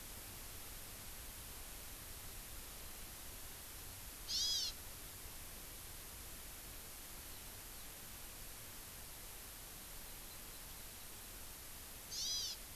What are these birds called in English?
Hawaii Amakihi